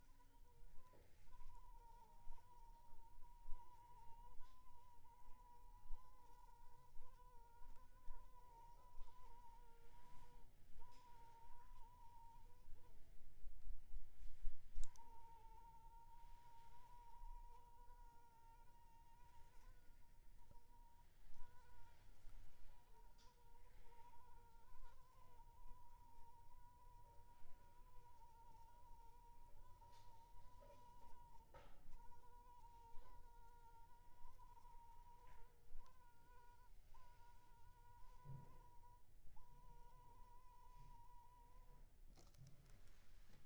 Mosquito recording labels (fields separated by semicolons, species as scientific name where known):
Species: Anopheles funestus s.s.; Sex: female; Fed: unfed; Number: one; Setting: cup